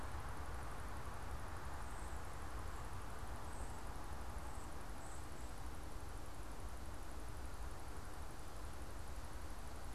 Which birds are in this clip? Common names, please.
unidentified bird